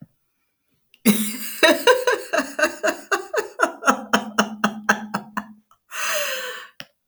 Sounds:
Laughter